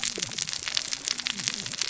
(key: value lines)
label: biophony, cascading saw
recorder: SoundTrap 600 or HydroMoth